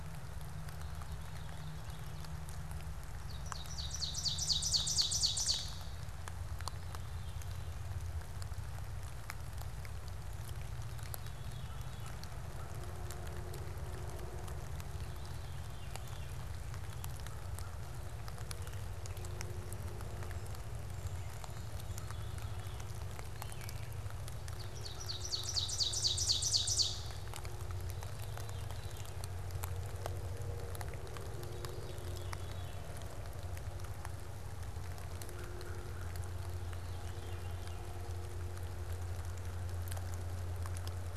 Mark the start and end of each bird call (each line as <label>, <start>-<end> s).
Ovenbird (Seiurus aurocapilla), 0.0-2.6 s
Ovenbird (Seiurus aurocapilla), 3.2-6.2 s
Veery (Catharus fuscescens), 6.3-8.0 s
Veery (Catharus fuscescens), 10.6-12.3 s
Veery (Catharus fuscescens), 14.8-16.6 s
Veery (Catharus fuscescens), 21.3-23.1 s
Ovenbird (Seiurus aurocapilla), 24.4-27.6 s
Veery (Catharus fuscescens), 27.8-29.4 s
Veery (Catharus fuscescens), 31.2-33.1 s
Veery (Catharus fuscescens), 36.3-38.1 s